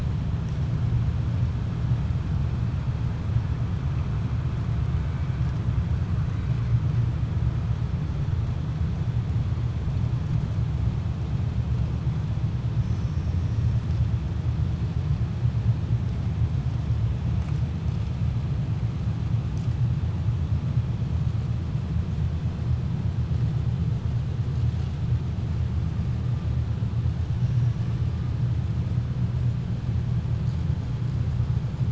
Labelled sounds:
27.3	28.0	killer whale, 4.9 to 6.7 kHz

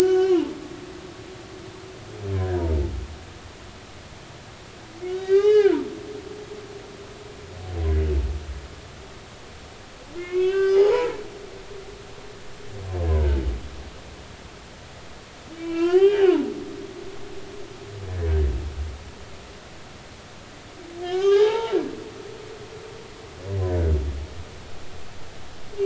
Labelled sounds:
0.0	0.5	humpback whale, 0.83 to 5.4 kHz
1.0	1.3	humpback whale, 1.4 to 1.6 kHz
2.3	2.6	humpback whale, 1.5 to 1.8 kHz
5.1	5.8	humpback whale, 1.3 to 5.2 kHz
10.2	11.2	humpback whale, 0.80 to 5.3 kHz
15.6	16.5	humpback whale, 0.80 to 3.3 kHz
21.0	21.7	humpback whale, 0.80 to 6.5 kHz
23.7	23.9	humpback whale, 1.4 to 1.7 kHz

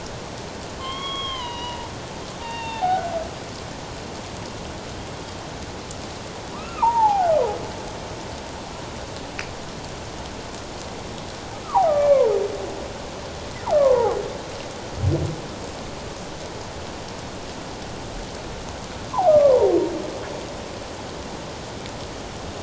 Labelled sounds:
0.8	3.1	humpback whale, 0.78 to 5.9 kHz
6.5	7.3	humpback whale, 0.78 to 2.8 kHz
11.6	12.2	humpback whale, 0.78 to 2.4 kHz
13.7	14.2	humpback whale, 0.78 to 1.3 kHz
19.3	19.7	humpback whale, 0.81 to 1.3 kHz

